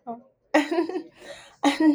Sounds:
Laughter